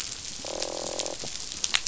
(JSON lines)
{"label": "biophony, croak", "recorder": "SoundTrap 500"}